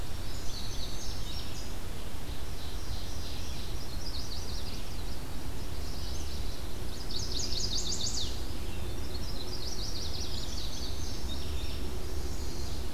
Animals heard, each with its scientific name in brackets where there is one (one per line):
Ovenbird (Seiurus aurocapilla)
Indigo Bunting (Passerina cyanea)
Chestnut-sided Warbler (Setophaga pensylvanica)